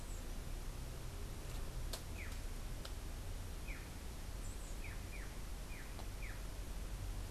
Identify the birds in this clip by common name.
Black-chested Jay